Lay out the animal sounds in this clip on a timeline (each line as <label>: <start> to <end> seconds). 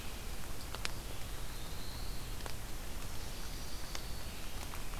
Black-throated Blue Warbler (Setophaga caerulescens): 1.1 to 2.4 seconds
Black-throated Green Warbler (Setophaga virens): 3.4 to 4.7 seconds